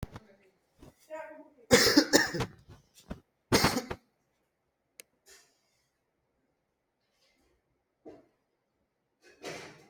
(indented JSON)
{
  "expert_labels": [
    {
      "quality": "good",
      "cough_type": "dry",
      "dyspnea": false,
      "wheezing": false,
      "stridor": false,
      "choking": false,
      "congestion": false,
      "nothing": true,
      "diagnosis": "upper respiratory tract infection",
      "severity": "mild"
    }
  ],
  "age": 25,
  "gender": "male",
  "respiratory_condition": false,
  "fever_muscle_pain": false,
  "status": "symptomatic"
}